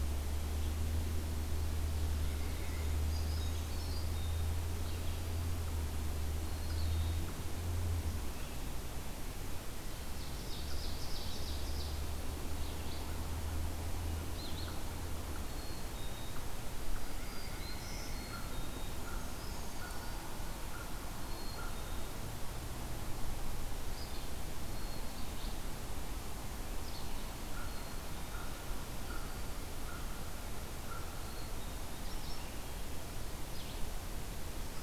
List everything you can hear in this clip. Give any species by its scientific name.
Vireo olivaceus, Certhia americana, Seiurus aurocapilla, Poecile atricapillus, Setophaga virens, Corvus brachyrhynchos